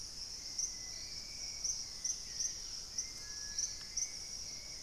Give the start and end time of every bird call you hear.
0.0s-4.8s: Dusky-capped Greenlet (Pachysylvia hypoxantha)
0.0s-4.8s: Hauxwell's Thrush (Turdus hauxwelli)

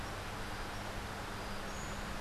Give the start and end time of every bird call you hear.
1.6s-2.1s: Buff-throated Saltator (Saltator maximus)

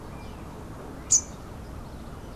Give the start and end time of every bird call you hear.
0.0s-1.5s: Rufous-capped Warbler (Basileuterus rufifrons)

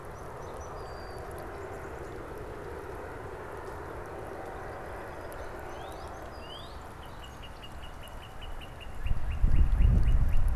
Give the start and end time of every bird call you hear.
0.0s-1.5s: Song Sparrow (Melospiza melodia)
5.1s-6.8s: Song Sparrow (Melospiza melodia)
5.4s-10.5s: Northern Cardinal (Cardinalis cardinalis)

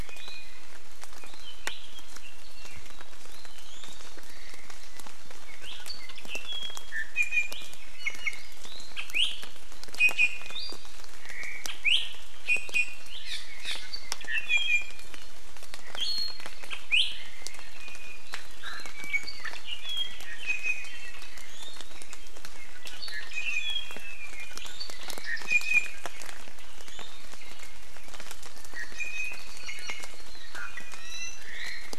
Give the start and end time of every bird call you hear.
0.0s-0.6s: Iiwi (Drepanis coccinea)
3.5s-4.0s: Iiwi (Drepanis coccinea)
6.9s-8.5s: Iiwi (Drepanis coccinea)
9.0s-9.3s: Iiwi (Drepanis coccinea)
9.9s-10.5s: Iiwi (Drepanis coccinea)
11.3s-11.6s: Omao (Myadestes obscurus)
11.8s-12.0s: Iiwi (Drepanis coccinea)
12.4s-13.0s: Iiwi (Drepanis coccinea)
14.2s-15.3s: Iiwi (Drepanis coccinea)
16.8s-17.0s: Iiwi (Drepanis coccinea)
17.7s-18.2s: Iiwi (Drepanis coccinea)
18.5s-21.3s: Iiwi (Drepanis coccinea)
23.0s-24.6s: Iiwi (Drepanis coccinea)
25.4s-26.0s: Iiwi (Drepanis coccinea)
28.8s-30.1s: Iiwi (Drepanis coccinea)
30.8s-31.4s: Iiwi (Drepanis coccinea)
31.4s-31.9s: Omao (Myadestes obscurus)

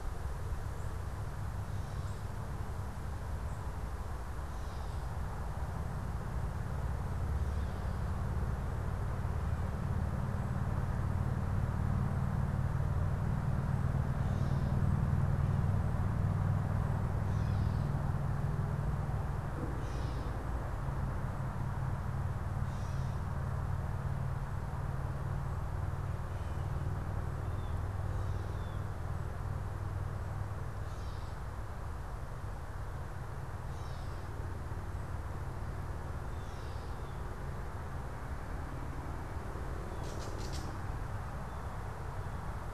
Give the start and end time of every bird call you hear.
0.6s-2.4s: unidentified bird
4.4s-8.3s: Gray Catbird (Dumetella carolinensis)
14.0s-17.9s: Gray Catbird (Dumetella carolinensis)
19.8s-42.7s: Gray Catbird (Dumetella carolinensis)
27.4s-28.9s: Blue Jay (Cyanocitta cristata)

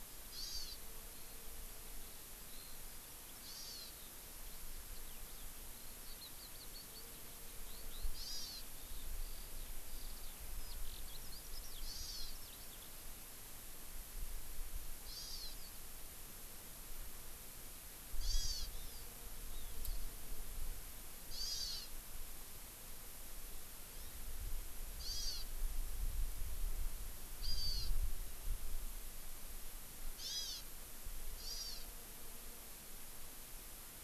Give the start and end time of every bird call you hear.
0.0s-12.8s: Eurasian Skylark (Alauda arvensis)
0.3s-0.8s: Hawaii Amakihi (Chlorodrepanis virens)
3.4s-3.9s: Hawaii Amakihi (Chlorodrepanis virens)
8.1s-8.6s: Hawaii Amakihi (Chlorodrepanis virens)
11.8s-12.3s: Hawaii Amakihi (Chlorodrepanis virens)
15.0s-15.6s: Hawaii Amakihi (Chlorodrepanis virens)
18.1s-19.0s: Hawaii Amakihi (Chlorodrepanis virens)
21.3s-21.8s: Hawaii Amakihi (Chlorodrepanis virens)
24.9s-25.4s: Hawaii Amakihi (Chlorodrepanis virens)
27.4s-27.9s: Hawaii Amakihi (Chlorodrepanis virens)
30.2s-30.6s: Hawaii Amakihi (Chlorodrepanis virens)
31.3s-31.8s: Hawaii Amakihi (Chlorodrepanis virens)

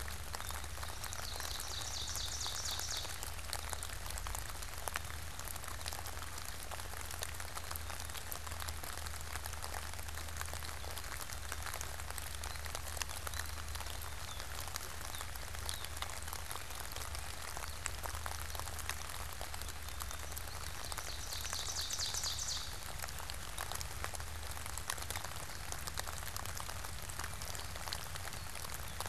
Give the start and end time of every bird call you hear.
0.5s-3.6s: Ovenbird (Seiurus aurocapilla)
12.3s-16.4s: Gray Catbird (Dumetella carolinensis)
20.4s-23.1s: Ovenbird (Seiurus aurocapilla)

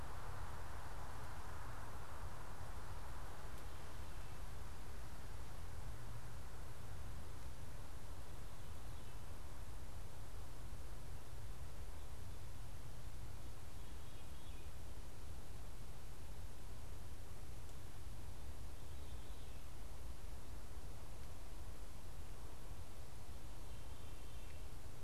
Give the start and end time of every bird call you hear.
13.5s-14.8s: unidentified bird
18.1s-25.0s: Veery (Catharus fuscescens)

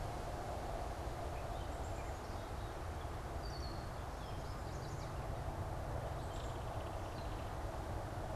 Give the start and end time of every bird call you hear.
1.6s-3.1s: Black-capped Chickadee (Poecile atricapillus)
3.3s-3.9s: Red-winged Blackbird (Agelaius phoeniceus)
4.0s-5.3s: Yellow Warbler (Setophaga petechia)
6.0s-7.7s: Belted Kingfisher (Megaceryle alcyon)

